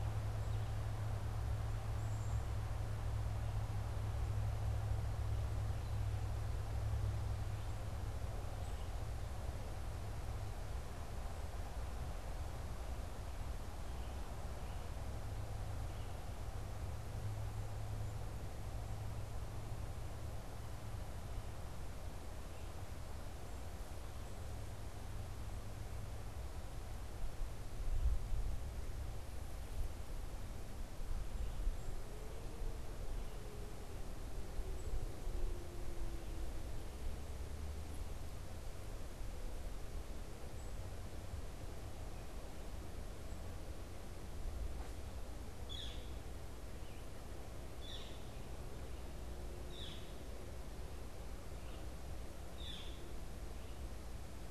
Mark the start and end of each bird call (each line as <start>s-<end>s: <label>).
1.9s-2.5s: Black-capped Chickadee (Poecile atricapillus)
45.5s-54.5s: Northern Flicker (Colaptes auratus)